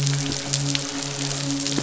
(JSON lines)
{"label": "biophony, midshipman", "recorder": "SoundTrap 500"}